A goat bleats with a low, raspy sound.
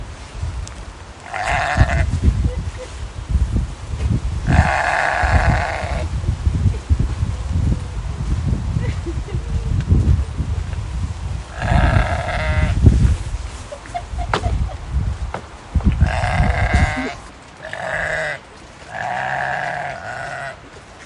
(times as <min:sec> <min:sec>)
0:01.3 0:02.1, 0:04.5 0:06.1, 0:11.6 0:12.9, 0:16.0 0:20.5